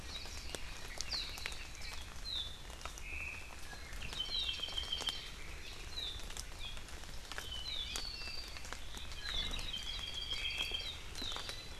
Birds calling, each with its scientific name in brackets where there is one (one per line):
Red-billed Leiothrix (Leiothrix lutea)
Omao (Myadestes obscurus)
Apapane (Himatione sanguinea)
Warbling White-eye (Zosterops japonicus)